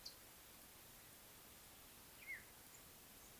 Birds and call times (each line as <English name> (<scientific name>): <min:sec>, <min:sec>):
African Black-headed Oriole (Oriolus larvatus): 0:02.3